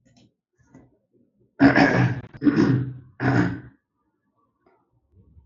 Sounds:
Throat clearing